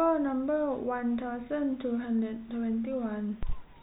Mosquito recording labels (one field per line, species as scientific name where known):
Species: no mosquito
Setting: cup